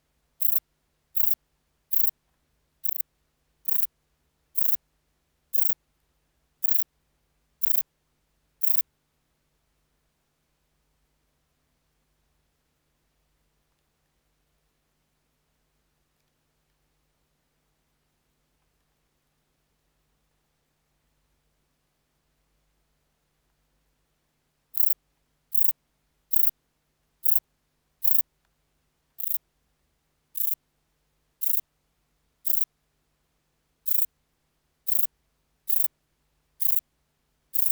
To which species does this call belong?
Rhacocleis poneli